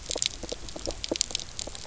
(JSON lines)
{"label": "biophony, pulse", "recorder": "SoundTrap 300"}